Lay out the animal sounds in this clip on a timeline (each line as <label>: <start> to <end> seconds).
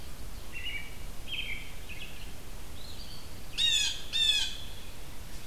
American Robin (Turdus migratorius): 0.5 to 3.3 seconds
Red-eyed Vireo (Vireo olivaceus): 2.6 to 5.5 seconds
Blue Jay (Cyanocitta cristata): 3.4 to 4.9 seconds